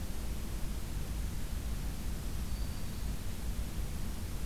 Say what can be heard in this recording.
Black-throated Green Warbler